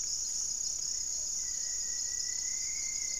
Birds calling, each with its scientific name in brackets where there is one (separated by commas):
Rufous-fronted Antthrush (Formicarius rufifrons), Plumbeous Pigeon (Patagioenas plumbea)